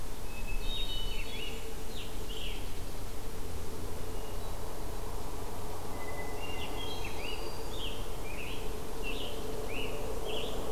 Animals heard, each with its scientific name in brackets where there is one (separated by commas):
Black-throated Green Warbler (Setophaga virens), Hermit Thrush (Catharus guttatus), Scarlet Tanager (Piranga olivacea)